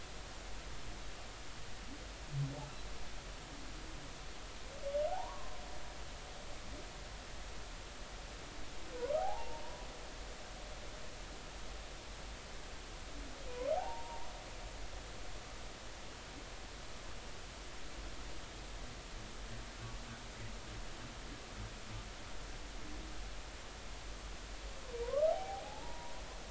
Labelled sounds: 5.1	5.6	humpback whale, 0.80 to 1.2 kHz
9.2	9.6	humpback whale, 0.80 to 0.99 kHz
13.7	14.3	humpback whale, 0.80 to 1.0 kHz
25.0	26.1	humpback whale, 0.80 to 1.3 kHz

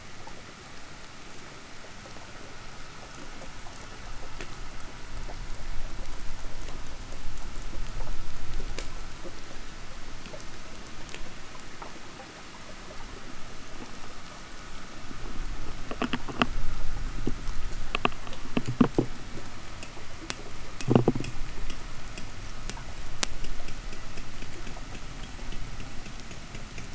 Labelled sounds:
15.7	21.4	noise likely from the mooring, 0 to 5.9 kHz

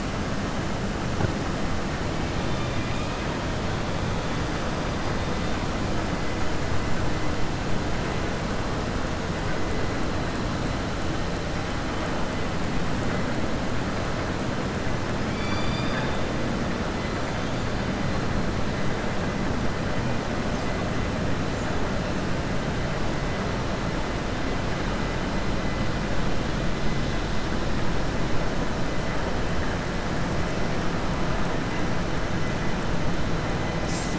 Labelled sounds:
15.2	16.1	killer whale, southern resident, 0.90 to 5.9 kHz

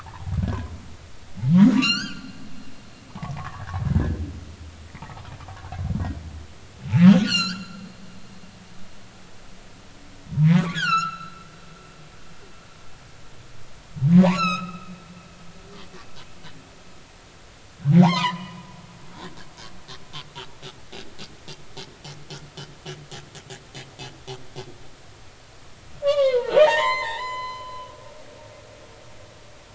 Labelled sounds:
1.8	2.3	humpback whale, 1.3 to 6.6 kHz
3.2	3.8	humpback whale, 0.80 to 1.9 kHz
7.1	7.8	humpback whale, 1.2 to 7.5 kHz
10.7	11.5	humpback whale, 1.1 to 6.0 kHz
14.1	14.9	humpback whale, 0.80 to 6.9 kHz
18.0	18.7	humpback whale, 0.80 to 3.2 kHz
19.2	19.5	humpback whale, 1.5 to 2.0 kHz
26.0	28.7	humpback whale, 0.80 to 7.4 kHz

